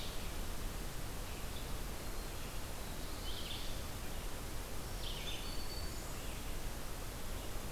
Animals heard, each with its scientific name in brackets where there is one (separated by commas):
Black-throated Green Warbler (Setophaga virens), Red-eyed Vireo (Vireo olivaceus)